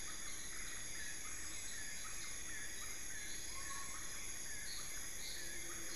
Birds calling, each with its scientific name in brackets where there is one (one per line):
Collared Forest-Falcon (Micrastur semitorquatus)
Amazonian Motmot (Momotus momota)
Black-fronted Nunbird (Monasa nigrifrons)